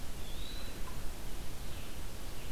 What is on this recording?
Eastern Wood-Pewee, Red-eyed Vireo, Rose-breasted Grosbeak